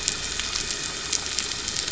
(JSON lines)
{"label": "anthrophony, boat engine", "recorder": "SoundTrap 300"}